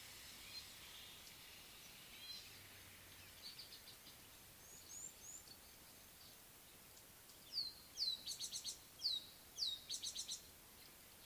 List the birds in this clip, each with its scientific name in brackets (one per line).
Red-cheeked Cordonbleu (Uraeginthus bengalus)
Rattling Cisticola (Cisticola chiniana)